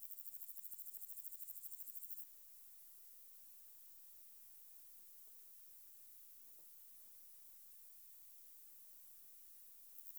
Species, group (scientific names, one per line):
Omocestus bolivari
Orthoptera